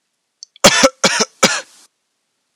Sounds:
Cough